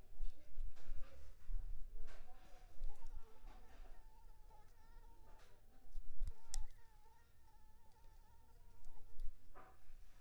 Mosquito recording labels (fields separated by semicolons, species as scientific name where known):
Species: Anopheles arabiensis; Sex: female; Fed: unfed; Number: one; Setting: cup